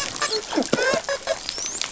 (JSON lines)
{"label": "biophony, dolphin", "recorder": "SoundTrap 500"}